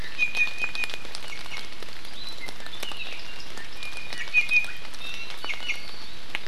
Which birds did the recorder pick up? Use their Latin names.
Drepanis coccinea